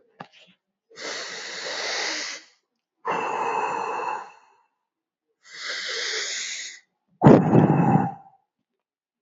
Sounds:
Sigh